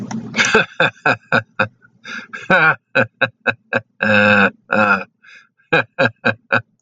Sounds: Laughter